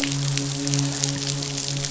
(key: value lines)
label: biophony, midshipman
recorder: SoundTrap 500